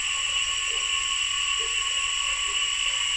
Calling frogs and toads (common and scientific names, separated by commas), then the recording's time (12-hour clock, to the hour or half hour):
Usina tree frog (Boana lundii)
6:30pm